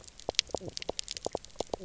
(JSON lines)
{"label": "biophony, knock croak", "recorder": "SoundTrap 300"}